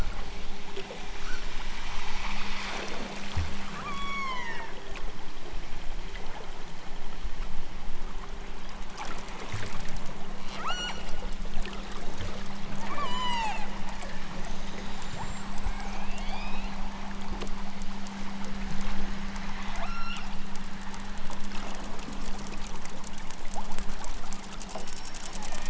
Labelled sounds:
3.8	4.8	killer whale, southern Alaska resident, 0.74 to 8.0 kHz
10.5	11.1	killer whale, southern Alaska resident, 0.46 to 8.0 kHz
12.8	13.7	killer whale, southern Alaska resident, 0.18 to 8.0 kHz
15.6	16.7	killer whale, southern Alaska resident, 1.0 to 5.9 kHz
19.8	20.3	killer whale, southern Alaska resident, 0.78 to 8.0 kHz

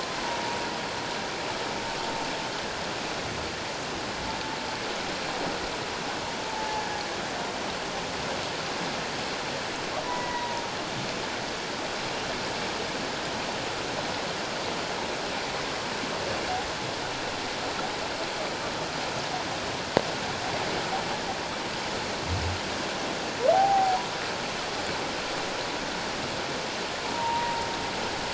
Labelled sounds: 0.2	0.6	humpback whale, 0.84 to 1.0 kHz
6.5	6.8	humpback whale, 0.78 to 0.94 kHz
10.0	10.6	humpback whale, 0.88 to 2.0 kHz
23.5	24.0	humpback whale, 0.78 to 0.88 kHz
27.0	27.6	humpback whale, 0.84 to 1.0 kHz

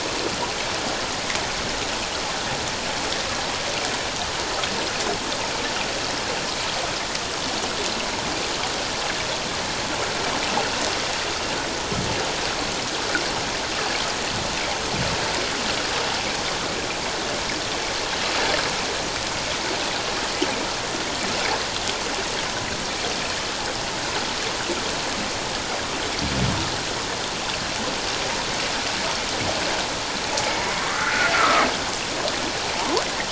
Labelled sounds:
30.9	31.7	humpback whale, 1.1 to 1.7 kHz
32.7	33.0	humpback whale, 0.78 to 1.2 kHz

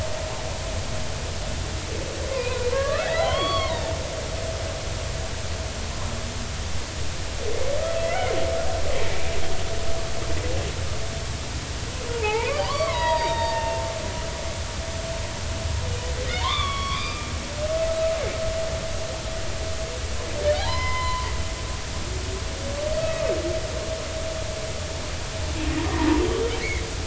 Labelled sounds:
2.3	3.8	humpback whale, 0.80 to 4.5 kHz
8.0	8.3	humpback whale, 1.9 to 2.3 kHz
12.1	13.8	humpback whale, 0.80 to 4.9 kHz
16.3	17.3	humpback whale, 0.86 to 4.9 kHz
20.6	21.3	humpback whale, 0.80 to 5.2 kHz
23.0	23.3	humpback whale, 2.4 to 2.6 kHz

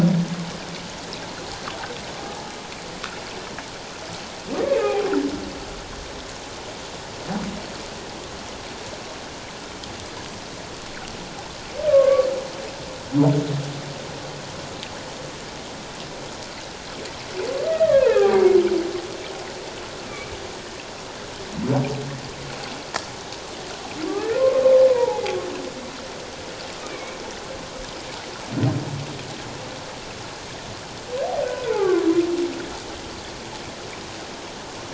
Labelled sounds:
4.7	5.1	humpback whale, 0.78 to 2.6 kHz
11.9	12.3	humpback whale, 1.0 to 1.2 kHz
17.6	18.5	humpback whale, 0.78 to 2.0 kHz
24.9	25.2	humpback whale, 0.78 to 1.0 kHz
26.8	27.2	humpback whale, 2.1 to 2.4 kHz
31.4	32.0	humpback whale, 0.97 to 1.6 kHz

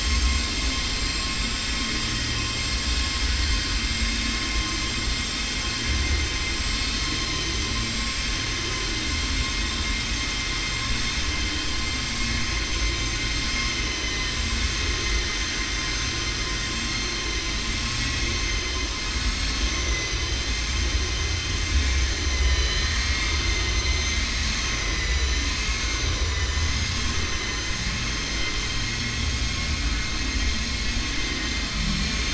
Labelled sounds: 13.8	14.4	vessel noise, 1.0 to 4.1 kHz
22.3	23.7	vessel noise, 1.0 to 7.2 kHz

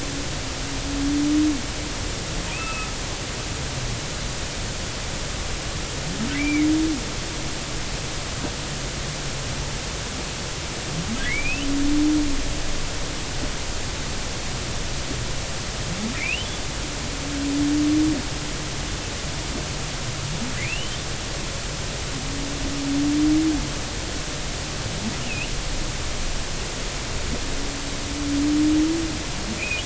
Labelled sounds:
2.5	2.9	humpback whale, 1.2 to 2.7 kHz
6.3	6.7	humpback whale, 1.9 to 2.4 kHz
11.2	11.7	humpback whale, 1.9 to 3.1 kHz
16.2	16.5	humpback whale, 2.0 to 3.2 kHz
20.6	21.0	humpback whale, 1.9 to 3.3 kHz
25.2	25.5	humpback whale, 2.4 to 3.0 kHz
29.6	29.8	humpback whale, 2.2 to 2.7 kHz

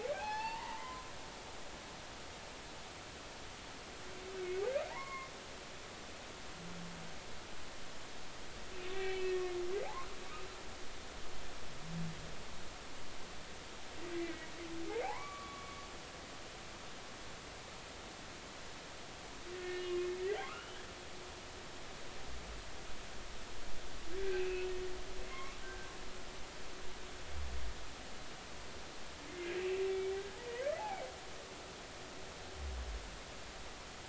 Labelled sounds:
0.0	1.1	humpback whale, 0.80 to 4.6 kHz
4.9	5.3	humpback whale, 0.80 to 2.2 kHz
8.9	9.4	humpback whale, 1.8 to 2.8 kHz
14.1	14.5	humpback whale, 1.9 to 2.4 kHz
15.0	15.8	humpback whale, 0.80 to 2.3 kHz
19.5	20.0	humpback whale, 1.7 to 2.9 kHz
20.4	20.8	humpback whale, 0.99 to 3.2 kHz
24.3	24.7	humpback whale, 2.4 to 2.8 kHz
25.3	25.9	humpback whale, 1.5 to 2.3 kHz

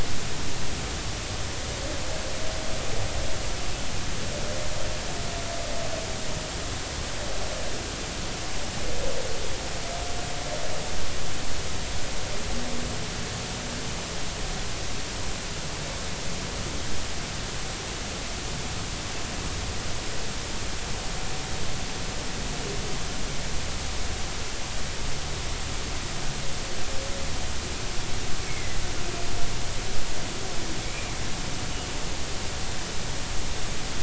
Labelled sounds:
28.4	28.8	humpback whale, 2.0 to 2.3 kHz

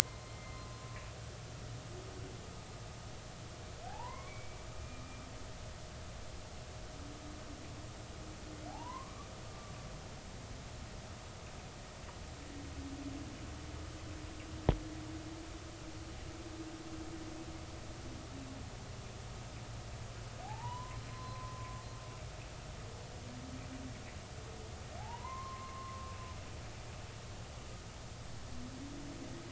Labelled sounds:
0.0	0.8	humpback whale, 0.96 to 2.1 kHz
3.9	4.6	humpback whale, 0.80 to 2.4 kHz
8.7	9.7	humpback whale, 0.80 to 1.2 kHz
20.4	21.8	humpback whale, 0.80 to 1.2 kHz
25.0	26.1	humpback whale, 0.80 to 1.2 kHz

